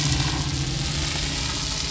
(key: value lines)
label: anthrophony, boat engine
recorder: SoundTrap 500